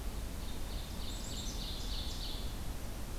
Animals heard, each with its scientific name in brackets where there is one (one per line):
Ovenbird (Seiurus aurocapilla)